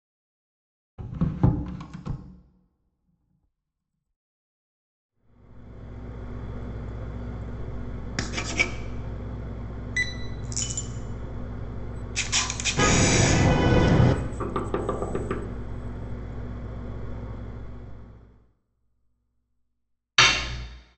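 From 5.07 to 18.67 seconds, you can hear a quiet engine fade in and fade out. At 0.98 seconds, a door closes. Then, at 8.16 seconds, writing is audible. Next, at 9.93 seconds, there is beeping. Following that, at 10.42 seconds, a coin drops. After that, at 12.15 seconds, the sound of a camera is heard. Over it, at 12.76 seconds, you can hear a vehicle horn. Following that, at 14.4 seconds, knocking is audible. At 20.17 seconds, the sound of cutlery can be heard.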